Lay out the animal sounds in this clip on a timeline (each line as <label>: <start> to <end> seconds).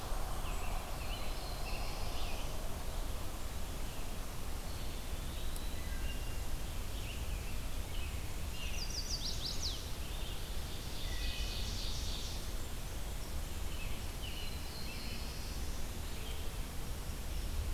American Robin (Turdus migratorius): 0.2 to 2.9 seconds
Black-throated Blue Warbler (Setophaga caerulescens): 0.9 to 2.7 seconds
Eastern Wood-Pewee (Contopus virens): 4.6 to 6.0 seconds
Wood Thrush (Hylocichla mustelina): 5.4 to 6.6 seconds
American Robin (Turdus migratorius): 6.7 to 8.9 seconds
Chestnut-sided Warbler (Setophaga pensylvanica): 8.6 to 9.8 seconds
Ovenbird (Seiurus aurocapilla): 9.8 to 12.6 seconds
Wood Thrush (Hylocichla mustelina): 10.8 to 11.7 seconds
American Robin (Turdus migratorius): 13.3 to 17.0 seconds
Black-throated Blue Warbler (Setophaga caerulescens): 13.9 to 16.0 seconds